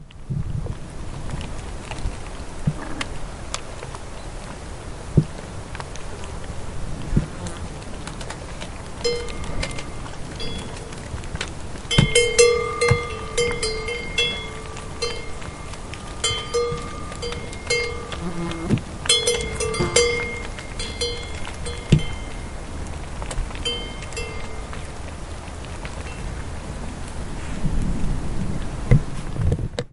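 Steady, moderate rain falling. 0:00.0 - 0:29.9
A dull thud is heard. 0:05.0 - 0:05.3
A dull thud is heard. 0:07.0 - 0:07.4
An insect buzzes with a low, steady tone. 0:07.2 - 0:07.8
A moderately loud metallic bell rings at a consistent pitch with an irregular rhythm. 0:08.9 - 0:10.6
A moderately loud metallic bell rings at a consistent pitch with an irregular rhythm. 0:11.8 - 0:22.2
An insect buzzes with a low, steady tone. 0:18.4 - 0:18.9
An insect buzzes with a low, steady tone. 0:19.8 - 0:20.3
A quiet metallic bell rings at a consistent pitch with an irregular rhythm. 0:23.7 - 0:27.1
Thunder sounds muffled and distant. 0:27.2 - 0:28.8

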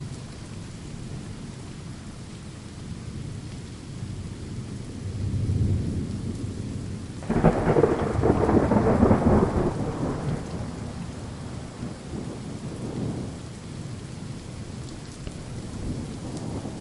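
Thunder rumbling in the distance. 0:07.3 - 0:09.9
A thunder reverberates. 0:09.9 - 0:14.3

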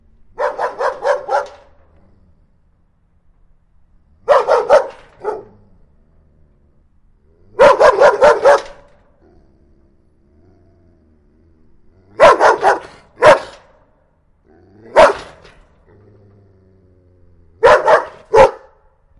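A dog barks aggressively and repeatedly with pauses, followed by a growling sound. 0:07.6 - 0:12.2

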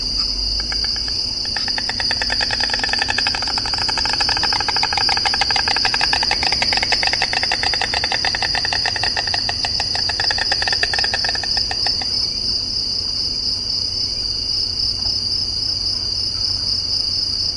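A cricket chirping. 0:00.0 - 0:01.5
A sharp rattling sound from two sources. 0:01.5 - 0:13.1
A cricket chirping. 0:13.1 - 0:17.5

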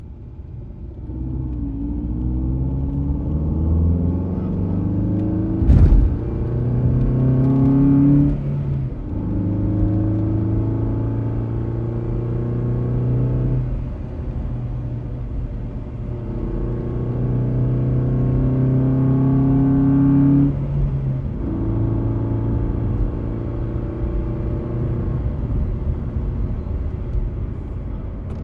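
Interior car noises including a bump, gear shifts, and fluctuating engine volume as the vehicle accelerates. 0:00.0 - 0:28.4

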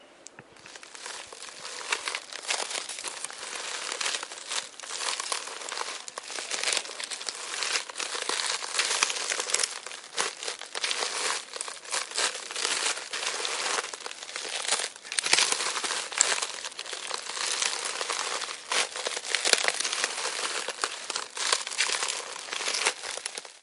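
A satisfying crunch and rustle of leaves underfoot. 0:06.3 - 0:11.5
Twigs crunch and snap while leaves rustle. 0:15.1 - 0:16.8
The crunch of dry leaves underfoot. 0:17.2 - 0:21.6

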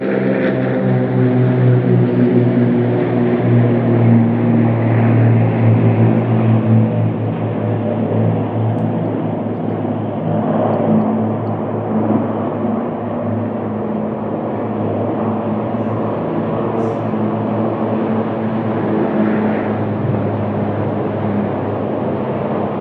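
An aircraft passes loudly, with the sound gradually fading. 0:00.1 - 0:10.7
An aircraft flies overhead with a gradually increasing loud sound. 0:10.9 - 0:22.8

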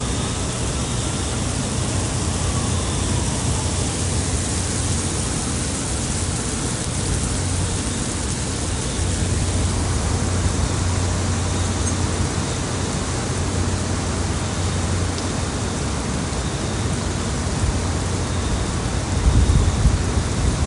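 Constant white noise. 0:00.0 - 0:20.7
A vehicle is idling. 0:08.9 - 0:12.6

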